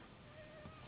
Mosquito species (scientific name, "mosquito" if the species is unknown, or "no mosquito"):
Anopheles gambiae s.s.